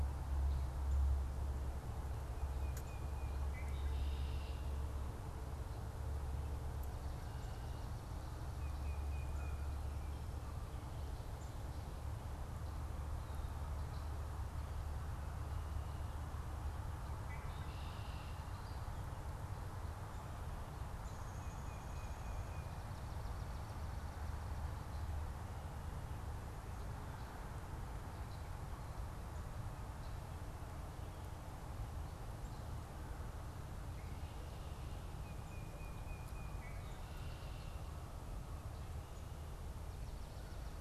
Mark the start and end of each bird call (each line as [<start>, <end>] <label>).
[2.38, 3.48] Tufted Titmouse (Baeolophus bicolor)
[3.38, 4.67] Red-winged Blackbird (Agelaius phoeniceus)
[6.78, 7.88] Swamp Sparrow (Melospiza georgiana)
[8.38, 9.68] Tufted Titmouse (Baeolophus bicolor)
[17.18, 18.48] Red-winged Blackbird (Agelaius phoeniceus)
[20.88, 22.27] Downy Woodpecker (Dryobates pubescens)
[21.07, 22.88] Tufted Titmouse (Baeolophus bicolor)
[35.08, 36.58] Tufted Titmouse (Baeolophus bicolor)
[36.58, 37.98] Red-winged Blackbird (Agelaius phoeniceus)